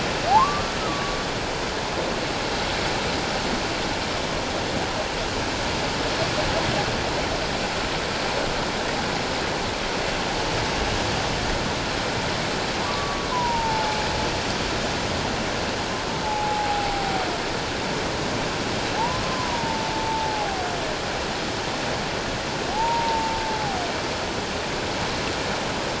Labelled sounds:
0.3	1.2	humpback whale, 0.78 to 1.3 kHz
12.8	14.0	humpback whale, 0.81 to 1.2 kHz
16.2	17.2	humpback whale, 0.78 to 0.91 kHz
19.2	20.6	humpback whale, 0.78 to 1.1 kHz
22.7	23.4	humpback whale, 0.78 to 1.0 kHz

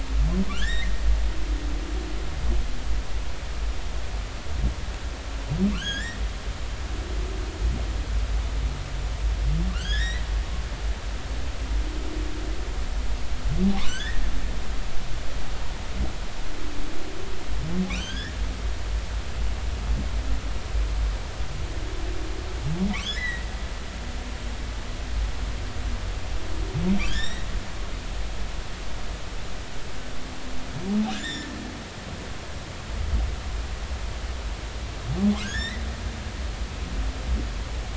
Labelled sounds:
0.5	0.9	humpback whale, 1.3 to 2.2 kHz
5.7	6.2	humpback whale, 1.3 to 5.8 kHz
9.7	10.2	humpback whale, 1.3 to 6.7 kHz
13.8	14.2	humpback whale, 1.4 to 3.6 kHz
17.9	18.4	humpback whale, 1.4 to 6.4 kHz
23.1	23.5	humpback whale, 1.5 to 4.1 kHz
27.1	27.5	humpback whale, 1.5 to 7.8 kHz
31.1	31.5	humpback whale, 1.5 to 7.6 kHz
35.4	35.8	humpback whale, 1.4 to 3.7 kHz

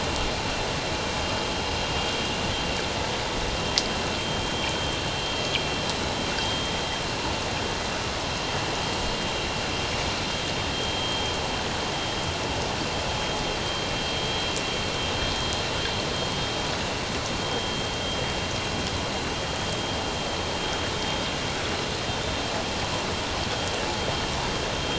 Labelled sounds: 6.4	6.7	vessel noise, 3.2 to 3.3 kHz

